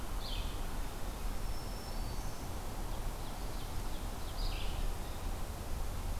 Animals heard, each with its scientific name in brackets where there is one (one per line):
Ovenbird (Seiurus aurocapilla)
Blue-headed Vireo (Vireo solitarius)
Black-throated Green Warbler (Setophaga virens)